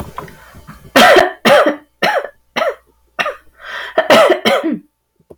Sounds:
Cough